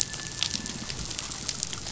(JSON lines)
{"label": "biophony", "recorder": "SoundTrap 500"}